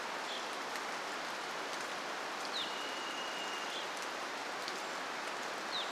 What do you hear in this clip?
Brown Creeper call, Evening Grosbeak call, rain, Varied Thrush song